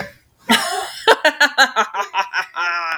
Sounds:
Laughter